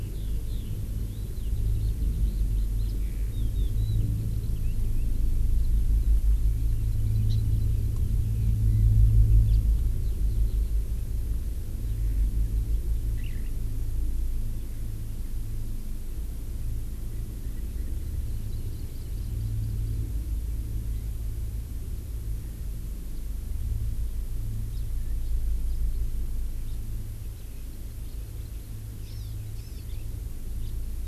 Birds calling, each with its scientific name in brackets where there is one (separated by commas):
Hawaii Amakihi (Chlorodrepanis virens), House Finch (Haemorhous mexicanus), Eurasian Skylark (Alauda arvensis)